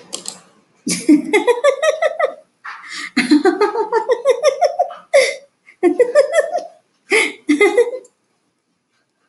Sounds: Laughter